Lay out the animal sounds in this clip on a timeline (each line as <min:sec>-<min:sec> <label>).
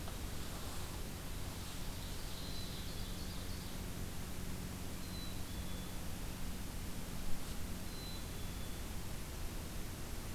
0:01.3-0:03.8 Ovenbird (Seiurus aurocapilla)
0:02.3-0:03.3 Black-capped Chickadee (Poecile atricapillus)
0:04.9-0:06.1 Black-capped Chickadee (Poecile atricapillus)
0:07.8-0:09.0 Black-capped Chickadee (Poecile atricapillus)